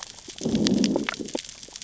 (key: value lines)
label: biophony, growl
recorder: SoundTrap 600 or HydroMoth